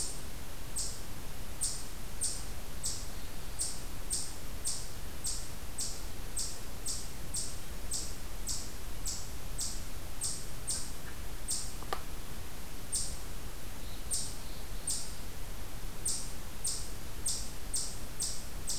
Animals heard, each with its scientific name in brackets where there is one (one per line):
Black-throated Blue Warbler (Setophaga caerulescens)
Eastern Chipmunk (Tamias striatus)